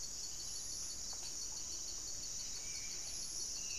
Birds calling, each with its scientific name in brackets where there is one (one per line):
Horned Screamer (Anhima cornuta)
Buff-breasted Wren (Cantorchilus leucotis)
Spot-winged Antshrike (Pygiptila stellaris)